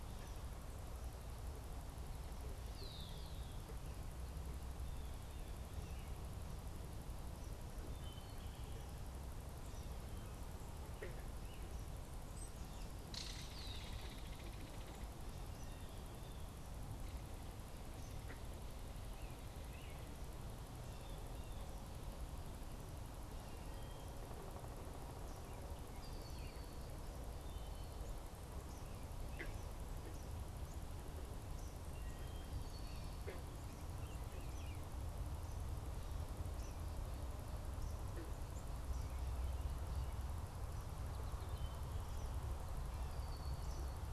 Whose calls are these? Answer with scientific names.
Agelaius phoeniceus, Cyanocitta cristata, Hylocichla mustelina, Tyrannus tyrannus, unidentified bird, Megaceryle alcyon, Turdus migratorius